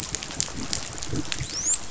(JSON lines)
{"label": "biophony, dolphin", "recorder": "SoundTrap 500"}